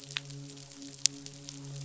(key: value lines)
label: biophony, midshipman
recorder: SoundTrap 500